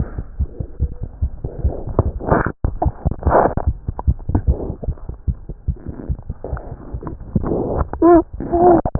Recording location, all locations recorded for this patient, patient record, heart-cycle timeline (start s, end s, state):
pulmonary valve (PV)
aortic valve (AV)+pulmonary valve (PV)+tricuspid valve (TV)+mitral valve (MV)
#Age: Infant
#Sex: Female
#Height: 69.0 cm
#Weight: 7.69 kg
#Pregnancy status: False
#Murmur: Unknown
#Murmur locations: nan
#Most audible location: nan
#Systolic murmur timing: nan
#Systolic murmur shape: nan
#Systolic murmur grading: nan
#Systolic murmur pitch: nan
#Systolic murmur quality: nan
#Diastolic murmur timing: nan
#Diastolic murmur shape: nan
#Diastolic murmur grading: nan
#Diastolic murmur pitch: nan
#Diastolic murmur quality: nan
#Outcome: Abnormal
#Campaign: 2015 screening campaign
0.00	4.46	unannotated
4.46	4.55	S2
4.55	4.67	diastole
4.67	4.73	S1
4.73	4.86	systole
4.86	4.95	S2
4.95	5.07	diastole
5.07	5.15	S1
5.15	5.26	systole
5.26	5.37	S2
5.37	5.48	diastole
5.48	5.56	S1
5.56	5.67	systole
5.67	5.76	S2
5.76	5.84	diastole
5.84	5.94	S1
5.94	6.07	systole
6.07	6.17	S2
6.17	6.28	diastole
6.28	6.38	S1
6.38	6.51	systole
6.51	6.61	S2
6.61	6.70	diastole
6.70	6.77	S1
6.77	6.92	systole
6.92	7.00	S2
7.00	7.12	diastole
7.12	7.22	S1
7.22	7.33	systole
7.33	7.43	S2
7.43	8.99	unannotated